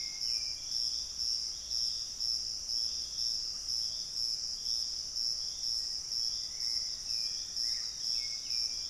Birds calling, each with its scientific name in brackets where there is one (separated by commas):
Hauxwell's Thrush (Turdus hauxwelli), Black-faced Antthrush (Formicarius analis), Piratic Flycatcher (Legatus leucophaius)